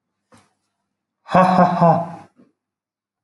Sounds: Laughter